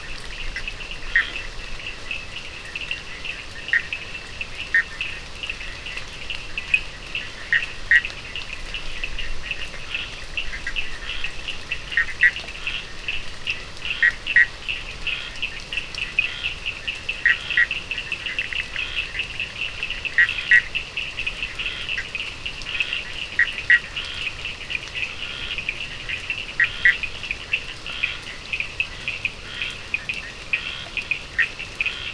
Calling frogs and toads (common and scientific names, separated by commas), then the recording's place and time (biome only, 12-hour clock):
Cochran's lime tree frog (Sphaenorhynchus surdus), Bischoff's tree frog (Boana bischoffi), Scinax perereca
Atlantic Forest, 11:15pm